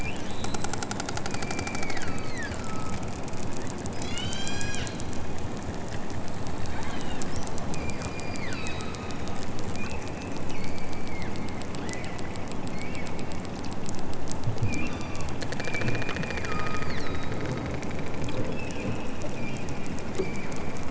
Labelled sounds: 1.3	3.1	killer whale, southern Alaska resident, 0.97 to 6.7 kHz
4.0	4.9	killer whale, southern Alaska resident, 1.0 to 8.0 kHz
6.7	7.3	killer whale, southern Alaska resident, 2.2 to 6.6 kHz
7.7	9.5	killer whale, southern Alaska resident, 1.1 to 5.2 kHz
14.8	17.8	killer whale, southern Alaska resident, 0.83 to 7.7 kHz
18.6	19.0	killer whale, southern Alaska resident, 2.0 to 6.0 kHz
19.3	19.8	killer whale, southern Alaska resident, 1.7 to 5.3 kHz
20.1	20.6	killer whale, southern Alaska resident, 1.8 to 4.8 kHz

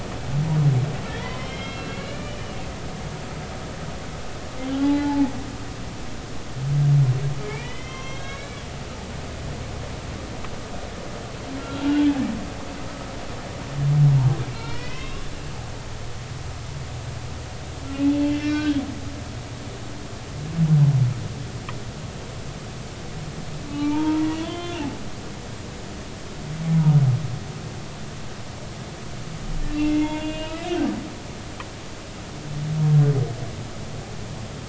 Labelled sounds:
1.1	2.4	humpback whale, 0.93 to 4.1 kHz
4.7	5.3	humpback whale, 0.80 to 0.93 kHz
7.4	8.6	humpback whale, 0.99 to 6.0 kHz
11.6	11.8	humpback whale, 1.3 to 1.4 kHz
14.5	15.2	humpback whale, 0.90 to 5.5 kHz
18.1	18.8	humpback whale, 1.2 to 3.9 kHz
23.7	24.8	humpback whale, 0.83 to 3.6 kHz
29.7	30.6	humpback whale, 0.86 to 3.5 kHz

